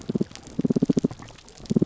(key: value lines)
label: biophony, damselfish
recorder: SoundTrap 300